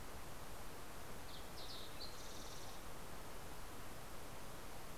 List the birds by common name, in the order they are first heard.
Fox Sparrow